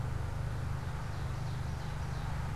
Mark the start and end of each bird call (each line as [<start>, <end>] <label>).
[0.39, 2.49] Ovenbird (Seiurus aurocapilla)